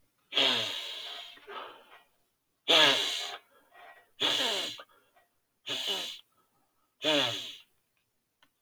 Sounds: Sniff